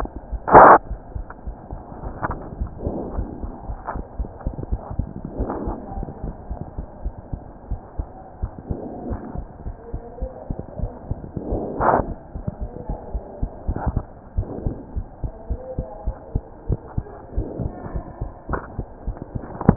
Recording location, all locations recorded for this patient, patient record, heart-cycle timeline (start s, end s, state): pulmonary valve (PV)
aortic valve (AV)+pulmonary valve (PV)+tricuspid valve (TV)+mitral valve (MV)
#Age: Child
#Sex: Female
#Height: 110.0 cm
#Weight: 18.9 kg
#Pregnancy status: False
#Murmur: Absent
#Murmur locations: nan
#Most audible location: nan
#Systolic murmur timing: nan
#Systolic murmur shape: nan
#Systolic murmur grading: nan
#Systolic murmur pitch: nan
#Systolic murmur quality: nan
#Diastolic murmur timing: nan
#Diastolic murmur shape: nan
#Diastolic murmur grading: nan
#Diastolic murmur pitch: nan
#Diastolic murmur quality: nan
#Outcome: Abnormal
#Campaign: 2015 screening campaign
0.00	7.00	unannotated
7.00	7.14	S1
7.14	7.32	systole
7.32	7.46	S2
7.46	7.68	diastole
7.68	7.80	S1
7.80	7.98	systole
7.98	8.10	S2
8.10	8.34	diastole
8.34	8.50	S1
8.50	8.68	systole
8.68	8.82	S2
8.82	9.02	diastole
9.02	9.18	S1
9.18	9.36	systole
9.36	9.48	S2
9.48	9.64	diastole
9.64	9.76	S1
9.76	9.92	systole
9.92	10.02	S2
10.02	10.20	diastole
10.20	10.30	S1
10.30	10.48	systole
10.48	10.58	S2
10.58	10.78	diastole
10.78	10.90	S1
10.90	11.07	systole
11.07	11.17	S2
11.17	11.49	diastole
11.49	11.61	S1
11.61	19.76	unannotated